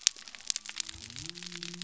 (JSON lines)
{"label": "biophony", "recorder": "SoundTrap 300"}